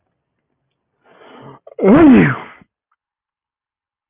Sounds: Sneeze